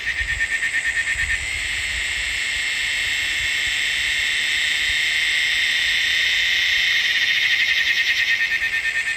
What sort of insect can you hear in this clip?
cicada